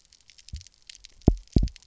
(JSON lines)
{"label": "biophony, double pulse", "recorder": "SoundTrap 300"}